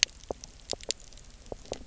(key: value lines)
label: biophony, knock croak
recorder: SoundTrap 300